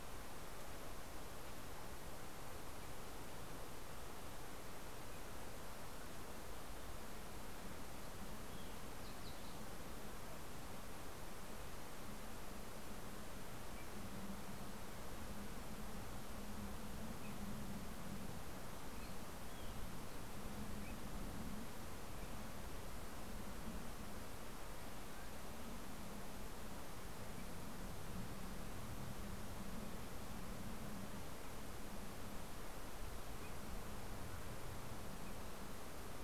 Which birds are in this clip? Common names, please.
Fox Sparrow